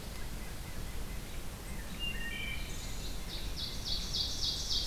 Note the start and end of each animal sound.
0.0s-1.3s: White-breasted Nuthatch (Sitta carolinensis)
1.8s-3.1s: Wood Thrush (Hylocichla mustelina)
3.0s-4.9s: Ovenbird (Seiurus aurocapilla)

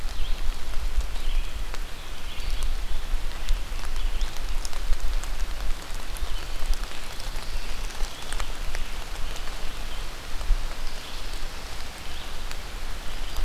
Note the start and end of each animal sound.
0.0s-13.4s: Red-eyed Vireo (Vireo olivaceus)

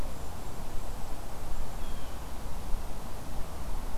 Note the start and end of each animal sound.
0.0s-2.1s: Golden-crowned Kinglet (Regulus satrapa)
1.7s-2.3s: Blue Jay (Cyanocitta cristata)

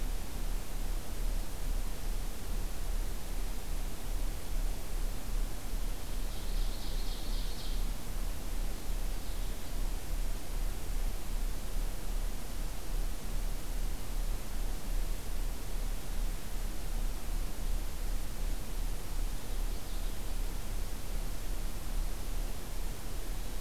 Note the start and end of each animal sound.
6.3s-7.9s: Ovenbird (Seiurus aurocapilla)
8.6s-9.9s: Purple Finch (Haemorhous purpureus)
19.5s-20.4s: Purple Finch (Haemorhous purpureus)

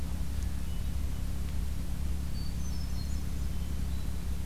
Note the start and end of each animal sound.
0.3s-1.2s: Hermit Thrush (Catharus guttatus)
2.2s-4.5s: Hermit Thrush (Catharus guttatus)

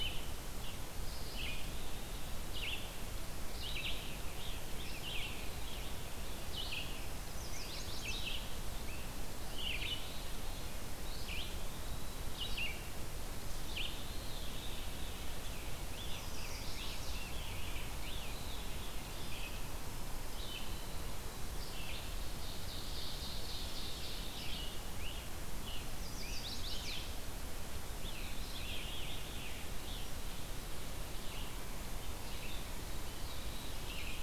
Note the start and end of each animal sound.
0.0s-34.2s: Red-eyed Vireo (Vireo olivaceus)
1.0s-2.4s: Eastern Wood-Pewee (Contopus virens)
3.6s-5.9s: Scarlet Tanager (Piranga olivacea)
7.2s-8.4s: Chestnut-sided Warbler (Setophaga pensylvanica)
7.8s-10.0s: Scarlet Tanager (Piranga olivacea)
9.4s-10.8s: Veery (Catharus fuscescens)
11.0s-12.6s: Eastern Wood-Pewee (Contopus virens)
13.4s-15.4s: Veery (Catharus fuscescens)
15.4s-18.6s: Scarlet Tanager (Piranga olivacea)
15.9s-17.3s: Chestnut-sided Warbler (Setophaga pensylvanica)
17.8s-19.6s: Veery (Catharus fuscescens)
22.1s-24.6s: Ovenbird (Seiurus aurocapilla)
24.0s-27.0s: Scarlet Tanager (Piranga olivacea)
25.8s-27.1s: Chestnut-sided Warbler (Setophaga pensylvanica)
27.8s-30.1s: Scarlet Tanager (Piranga olivacea)
28.0s-29.7s: Veery (Catharus fuscescens)
32.9s-34.2s: Veery (Catharus fuscescens)

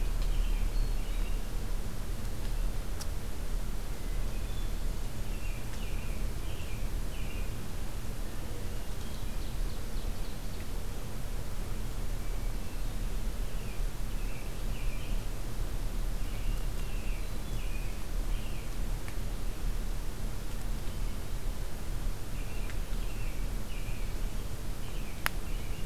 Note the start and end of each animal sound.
0.0s-1.4s: American Robin (Turdus migratorius)
0.7s-1.4s: Hermit Thrush (Catharus guttatus)
4.0s-4.8s: Hermit Thrush (Catharus guttatus)
5.3s-7.5s: American Robin (Turdus migratorius)
8.7s-9.5s: Hermit Thrush (Catharus guttatus)
9.1s-10.4s: Ovenbird (Seiurus aurocapilla)
12.0s-13.1s: Hermit Thrush (Catharus guttatus)
13.4s-15.4s: American Robin (Turdus migratorius)
16.1s-18.7s: American Robin (Turdus migratorius)
16.6s-17.7s: Hermit Thrush (Catharus guttatus)
22.3s-25.9s: American Robin (Turdus migratorius)

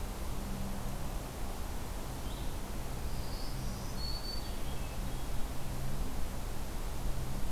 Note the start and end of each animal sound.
2.0s-2.9s: Blue-headed Vireo (Vireo solitarius)
3.1s-5.3s: Black-throated Green Warbler (Setophaga virens)
4.4s-5.4s: Hermit Thrush (Catharus guttatus)

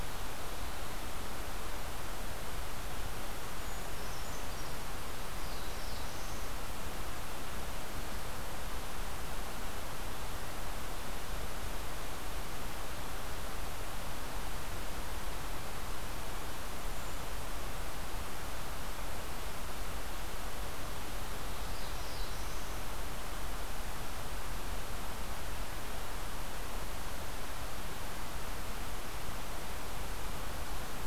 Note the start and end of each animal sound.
3.5s-4.8s: Brown Creeper (Certhia americana)
5.3s-6.5s: Black-throated Blue Warbler (Setophaga caerulescens)
21.3s-22.7s: Black-throated Blue Warbler (Setophaga caerulescens)

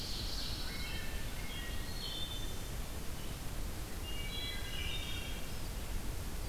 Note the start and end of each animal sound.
0.0s-0.7s: Ovenbird (Seiurus aurocapilla)
0.0s-1.3s: Pine Warbler (Setophaga pinus)
0.6s-2.8s: Wood Thrush (Hylocichla mustelina)
3.9s-5.7s: Wood Thrush (Hylocichla mustelina)

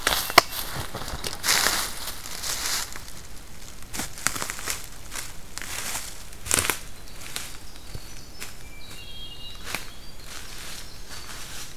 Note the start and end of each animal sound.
6.8s-11.8s: Winter Wren (Troglodytes hiemalis)

